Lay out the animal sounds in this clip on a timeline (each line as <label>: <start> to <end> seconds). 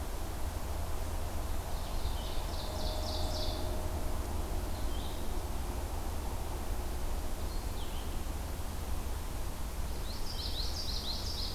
Red-eyed Vireo (Vireo olivaceus): 0.0 to 11.5 seconds
Ovenbird (Seiurus aurocapilla): 1.5 to 3.9 seconds
Common Yellowthroat (Geothlypis trichas): 9.9 to 11.5 seconds